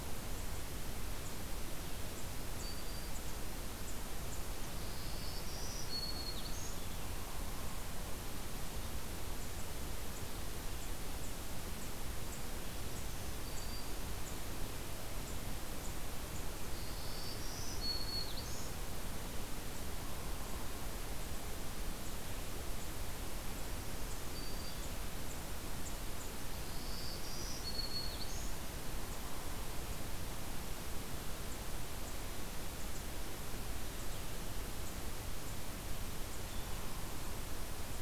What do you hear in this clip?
Black-throated Green Warbler, Hairy Woodpecker